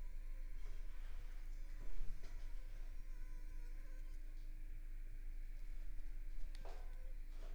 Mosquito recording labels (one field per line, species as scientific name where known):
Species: Culex pipiens complex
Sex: female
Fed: unfed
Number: one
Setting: cup